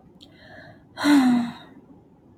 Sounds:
Sigh